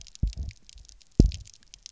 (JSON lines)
{"label": "biophony, double pulse", "recorder": "SoundTrap 300"}